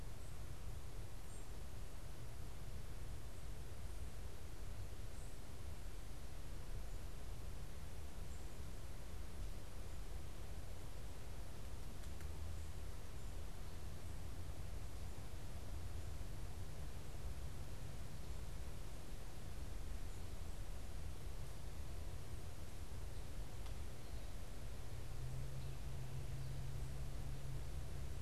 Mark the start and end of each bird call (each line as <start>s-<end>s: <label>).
1.2s-1.5s: unidentified bird